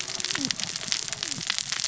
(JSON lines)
{"label": "biophony, cascading saw", "recorder": "SoundTrap 600 or HydroMoth"}